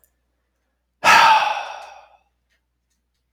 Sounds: Sigh